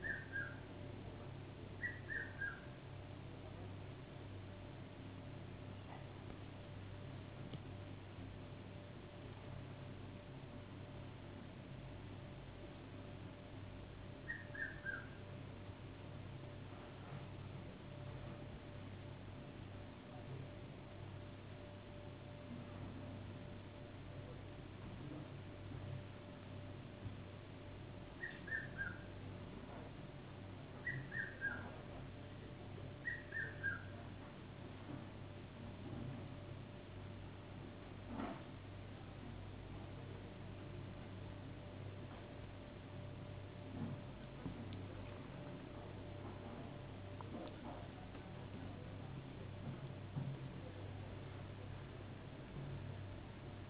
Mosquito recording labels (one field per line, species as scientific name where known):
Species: no mosquito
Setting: insect culture